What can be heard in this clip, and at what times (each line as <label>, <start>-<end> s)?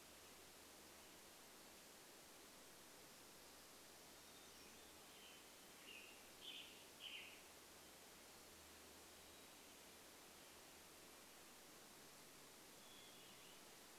Black-throated Gray Warbler song, 2-6 s
Hermit Thrush song, 4-6 s
Western Tanager song, 4-8 s
Hermit Thrush song, 8-10 s
Hermit Thrush song, 12-14 s